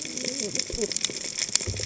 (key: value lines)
label: biophony, cascading saw
recorder: HydroMoth